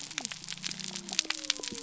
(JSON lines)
{"label": "biophony", "recorder": "SoundTrap 300"}